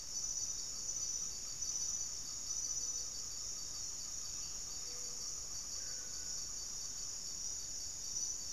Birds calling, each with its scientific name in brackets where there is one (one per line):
Great Antshrike (Taraba major)
Yellow-rumped Cacique (Cacicus cela)
Plumbeous Antbird (Myrmelastes hyperythrus)
Gray-fronted Dove (Leptotila rufaxilla)